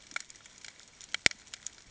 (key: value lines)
label: ambient
recorder: HydroMoth